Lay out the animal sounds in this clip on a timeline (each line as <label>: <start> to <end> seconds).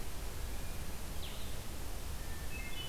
Blue-headed Vireo (Vireo solitarius): 0.0 to 2.9 seconds
Hermit Thrush (Catharus guttatus): 2.2 to 2.9 seconds